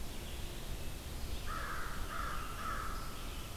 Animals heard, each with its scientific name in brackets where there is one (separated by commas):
Red-eyed Vireo (Vireo olivaceus), American Crow (Corvus brachyrhynchos)